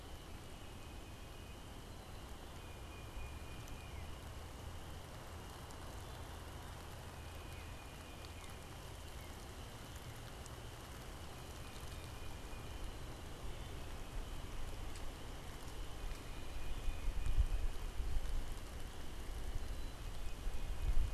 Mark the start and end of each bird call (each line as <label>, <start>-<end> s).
Tufted Titmouse (Baeolophus bicolor), 0.2-9.1 s
Northern Cardinal (Cardinalis cardinalis), 7.0-10.9 s
Tufted Titmouse (Baeolophus bicolor), 11.3-21.1 s